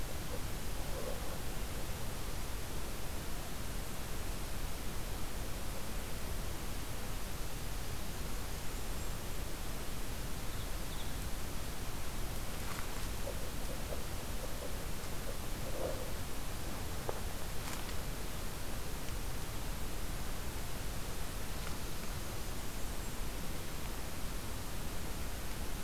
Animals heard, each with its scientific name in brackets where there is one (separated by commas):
Blackburnian Warbler (Setophaga fusca), Ovenbird (Seiurus aurocapilla)